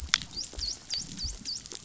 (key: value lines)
label: biophony, dolphin
recorder: SoundTrap 500